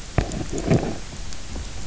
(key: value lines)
label: biophony
recorder: SoundTrap 300